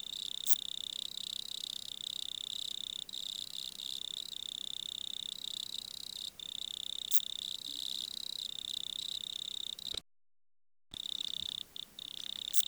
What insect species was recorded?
Phaneroptera falcata